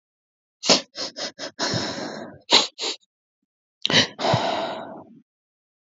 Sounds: Sigh